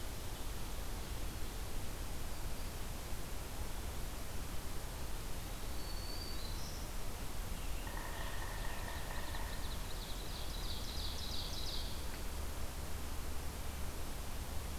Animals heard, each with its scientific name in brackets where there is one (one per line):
Black-throated Green Warbler (Setophaga virens)
Scarlet Tanager (Piranga olivacea)
Yellow-bellied Sapsucker (Sphyrapicus varius)
Ovenbird (Seiurus aurocapilla)